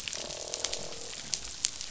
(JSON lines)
{"label": "biophony, croak", "recorder": "SoundTrap 500"}